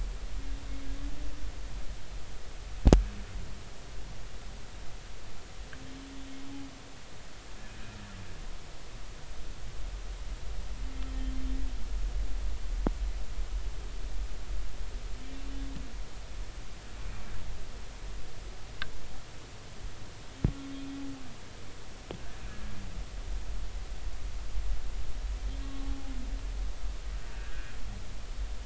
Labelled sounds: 25.6	26.1	humpback whale, 0.80 to 1.2 kHz
27.3	27.7	humpback whale, 1.4 to 1.8 kHz

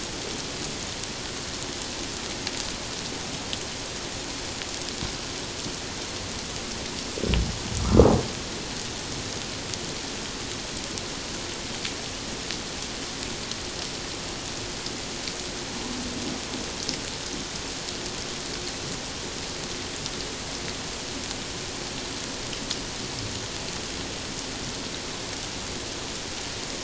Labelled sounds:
7.8	8.1	humpback whale, 1.1 to 1.4 kHz

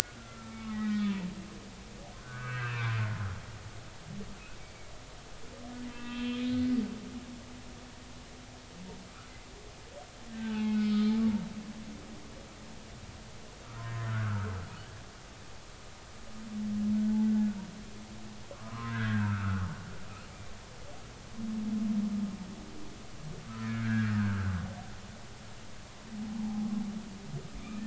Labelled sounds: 0.2	1.1	humpback whale, 1.2 to 3.9 kHz
2.2	2.9	humpback whale, 1.1 to 2.7 kHz
4.6	4.9	humpback whale, 2.1 to 2.3 kHz
5.9	6.5	humpback whale, 0.93 to 3.5 kHz
10.3	11.0	humpback whale, 0.80 to 3.9 kHz
13.8	14.6	humpback whale, 0.93 to 2.0 kHz
18.5	19.7	humpback whale, 0.96 to 2.1 kHz
23.6	24.5	humpback whale, 1.2 to 2.4 kHz
26.4	26.7	humpback whale, 0.80 to 0.93 kHz
27.6	27.8	humpback whale, 2.1 to 2.7 kHz

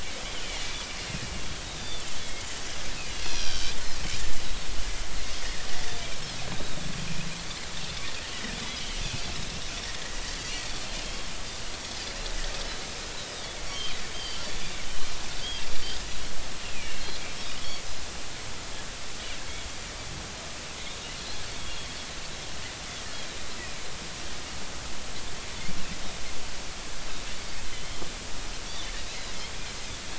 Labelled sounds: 1.8	2.5	Pacific white-sided dolphin, 2.1 to 3.7 kHz
3.2	3.7	Pacific white-sided dolphin, 2.3 to 4.9 kHz
5.4	5.7	Pacific white-sided dolphin, 1.7 to 2.0 kHz
8.5	9.6	Pacific white-sided dolphin, 1.7 to 3.5 kHz
13.7	14.8	Pacific white-sided dolphin, 3.0 to 4.8 kHz
16.6	17.1	Pacific white-sided dolphin, 2.1 to 2.9 kHz
21.2	21.4	Pacific white-sided dolphin, 3.9 to 4.3 kHz
27.7	28.0	Pacific white-sided dolphin, 3.0 to 3.2 kHz
28.7	29.3	Pacific white-sided dolphin, 3.3 to 4.1 kHz

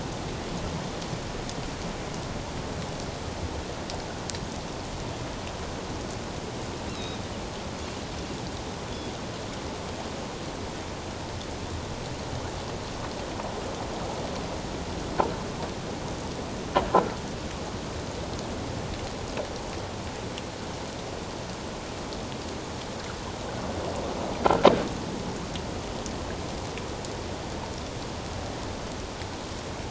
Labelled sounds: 6.9	7.2	Pacific white-sided dolphin, 3.7 to 4.2 kHz

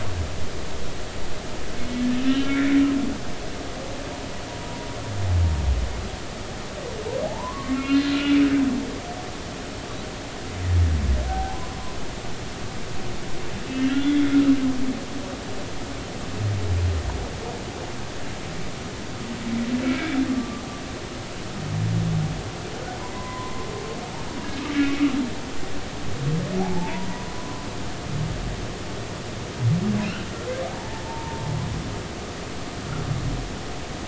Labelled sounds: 2.2	2.8	humpback whale, 2.0 to 3.1 kHz
4.6	4.9	humpback whale, 0.93 to 1.0 kHz
7.2	8.4	humpback whale, 0.80 to 4.3 kHz
11.3	11.6	humpback whale, 0.80 to 0.90 kHz
13.7	14.3	humpback whale, 1.3 to 3.6 kHz
20.3	20.7	humpback whale, 1.0 to 1.2 kHz
23.1	23.7	humpback whale, 0.93 to 1.1 kHz
24.7	25.1	humpback whale, 2.1 to 2.6 kHz
26.6	27.7	humpback whale, 0.80 to 1.1 kHz
30.0	30.3	humpback whale, 2.4 to 3.1 kHz
30.7	31.4	humpback whale, 0.83 to 1.1 kHz

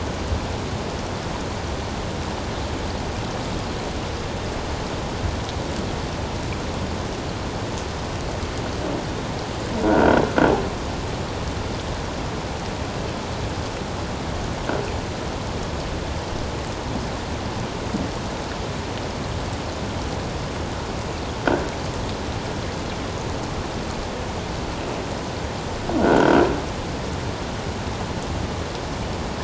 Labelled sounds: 9.8	10.2	croaking sound likely from a nearby submerged object, 1.3 to 1.6 kHz
26.0	26.4	croaking sound likely from a nearby submerged object, 1.3 to 3.3 kHz

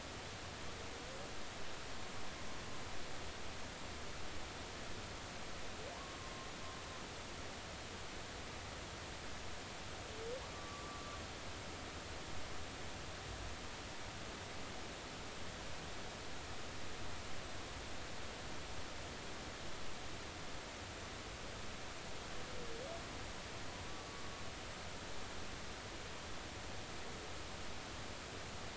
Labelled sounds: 5.9	6.5	humpback whale, 0.86 to 1.2 kHz
10.5	11.2	humpback whale, 1.1 to 1.2 kHz

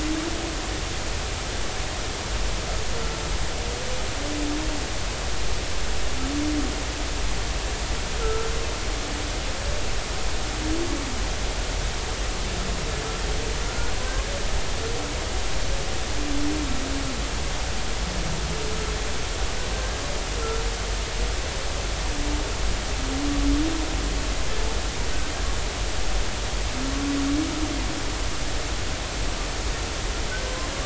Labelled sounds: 8.2	8.5	humpback whale, 1.3 to 1.4 kHz
13.7	13.9	humpback whale, 1.3 to 1.5 kHz

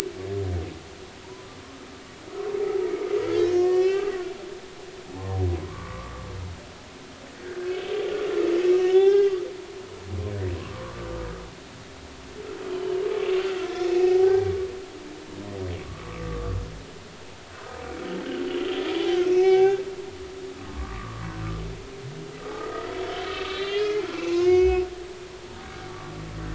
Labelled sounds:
3.3	4.1	humpback whale, 1.0 to 6.6 kHz
5.5	6.2	humpback whale, 0.96 to 1.2 kHz
8.8	9.3	humpback whale, 0.80 to 3.6 kHz
10.5	10.9	humpback whale, 0.96 to 1.2 kHz
12.7	13.0	humpback whale, 2.9 to 3.1 kHz
13.9	14.5	humpback whale, 0.80 to 2.7 kHz
16.0	16.5	humpback whale, 1.0 to 1.3 kHz
18.5	19.8	humpback whale, 0.80 to 3.6 kHz
20.6	21.2	humpback whale, 0.99 to 1.3 kHz
22.6	24.9	humpback whale, 0.96 to 6.0 kHz
25.6	25.9	humpback whale, 1.6 to 1.7 kHz

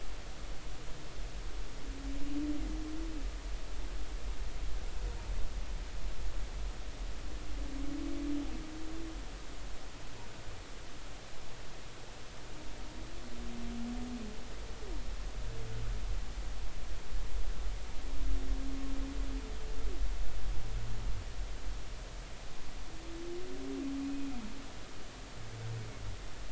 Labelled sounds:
24.0	24.3	humpback whale, 2.4 to 2.6 kHz

